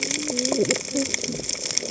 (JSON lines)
{"label": "biophony, cascading saw", "recorder": "HydroMoth"}